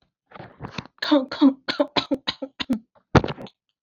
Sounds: Cough